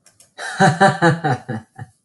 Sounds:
Laughter